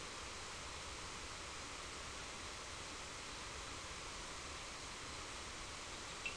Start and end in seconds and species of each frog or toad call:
6.2	6.3	Sphaenorhynchus surdus

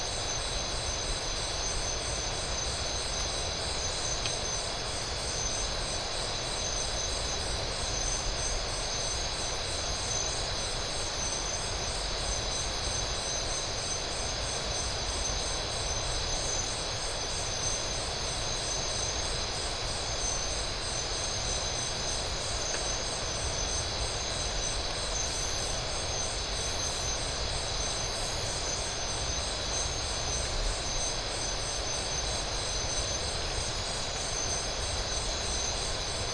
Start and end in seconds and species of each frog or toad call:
none

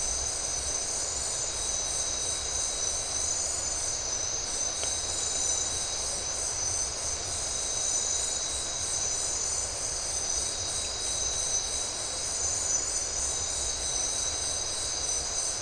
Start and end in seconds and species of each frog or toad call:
none

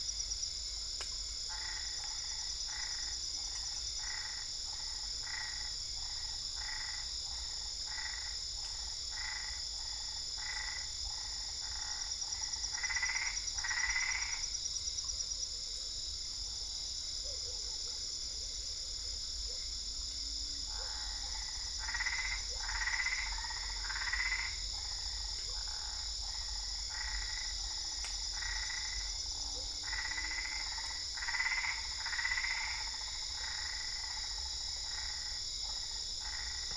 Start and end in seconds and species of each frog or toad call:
1.4	14.6	Boana albopunctata
20.5	36.7	Boana albopunctata

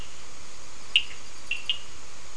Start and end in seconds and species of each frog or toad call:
0.9	1.9	Sphaenorhynchus surdus

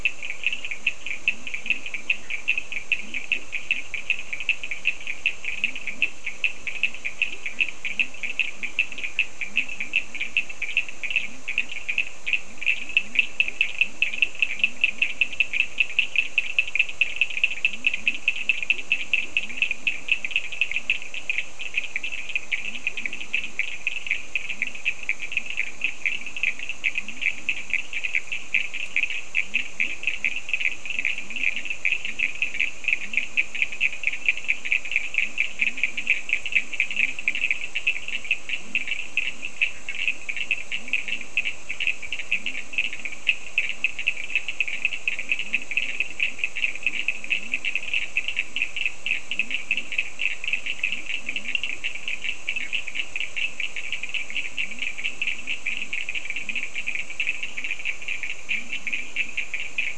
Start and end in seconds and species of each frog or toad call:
0.2	16.6	Leptodactylus latrans
17.6	20.6	Leptodactylus latrans
22.4	23.8	Leptodactylus latrans
24.5	28.2	Leptodactylus latrans
29.4	59.9	Leptodactylus latrans
39.7	40.3	Boana bischoffi
52.3	53.0	Boana bischoffi

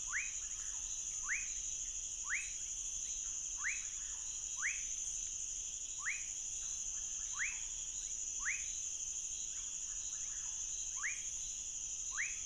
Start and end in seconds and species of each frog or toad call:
0.0	4.9	Leptodactylus fuscus
6.0	8.7	Leptodactylus fuscus
10.9	12.4	Leptodactylus fuscus

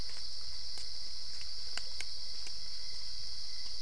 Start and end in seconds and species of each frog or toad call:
none

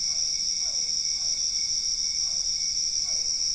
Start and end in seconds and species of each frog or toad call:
0.0	3.4	Physalaemus cuvieri

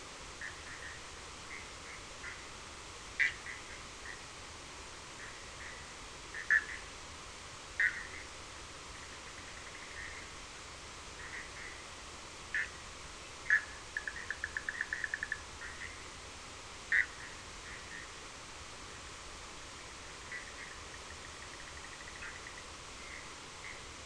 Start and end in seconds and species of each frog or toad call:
0.4	2.4	Boana bischoffi
3.2	4.2	Boana bischoffi
6.3	6.9	Boana bischoffi
7.8	8.2	Boana bischoffi
12.5	12.7	Boana bischoffi
13.5	15.5	Boana bischoffi
16.9	17.1	Boana bischoffi
20.3	23.8	Boana bischoffi

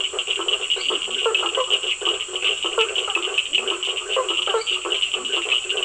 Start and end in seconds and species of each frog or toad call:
0.0	1.3	Leptodactylus latrans
0.0	5.8	Boana faber
0.0	5.8	Sphaenorhynchus surdus
0.6	1.3	Dendropsophus minutus
3.4	3.8	Leptodactylus latrans
4.2	5.0	Dendropsophus minutus
5.0	5.5	Leptodactylus latrans

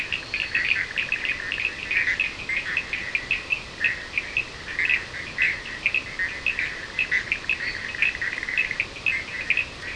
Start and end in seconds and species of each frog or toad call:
0.0	0.9	Boana leptolineata
0.0	9.9	Boana bischoffi
0.0	9.9	Sphaenorhynchus surdus
7.5	8.0	Boana leptolineata

